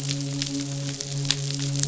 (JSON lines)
{"label": "biophony, midshipman", "recorder": "SoundTrap 500"}